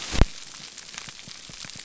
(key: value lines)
label: biophony
recorder: SoundTrap 300